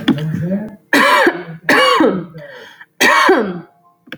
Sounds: Cough